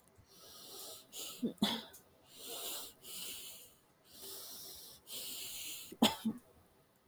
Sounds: Sniff